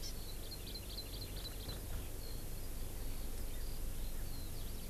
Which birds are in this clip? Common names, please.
Eurasian Skylark, Hawaii Amakihi